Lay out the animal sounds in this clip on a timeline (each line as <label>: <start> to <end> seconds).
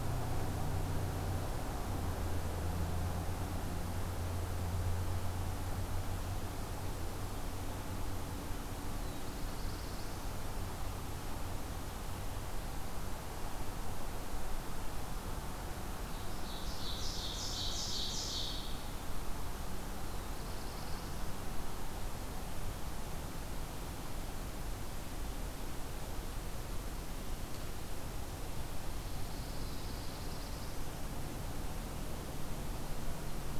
Black-throated Blue Warbler (Setophaga caerulescens): 8.7 to 10.3 seconds
Ovenbird (Seiurus aurocapilla): 15.8 to 19.2 seconds
Black-throated Blue Warbler (Setophaga caerulescens): 20.0 to 21.3 seconds
Pine Warbler (Setophaga pinus): 28.8 to 30.3 seconds
Black-throated Blue Warbler (Setophaga caerulescens): 29.8 to 31.0 seconds